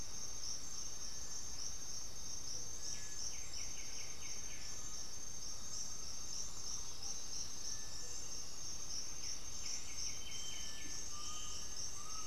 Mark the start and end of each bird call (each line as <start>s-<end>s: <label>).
0.0s-12.3s: Cinereous Tinamou (Crypturellus cinereus)
2.6s-12.3s: White-winged Becard (Pachyramphus polychopterus)
4.4s-12.3s: Undulated Tinamou (Crypturellus undulatus)
6.5s-8.1s: Russet-backed Oropendola (Psarocolius angustifrons)
6.7s-7.9s: Black-throated Antbird (Myrmophylax atrothorax)
10.1s-12.3s: Black-spotted Bare-eye (Phlegopsis nigromaculata)